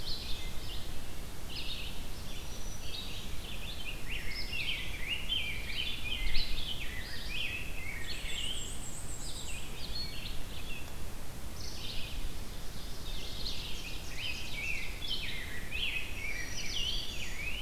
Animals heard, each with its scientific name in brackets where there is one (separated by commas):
Rose-breasted Grosbeak (Pheucticus ludovicianus), Red-eyed Vireo (Vireo olivaceus), Black-capped Chickadee (Poecile atricapillus), Ovenbird (Seiurus aurocapilla), Black-and-white Warbler (Mniotilta varia), Black-throated Green Warbler (Setophaga virens)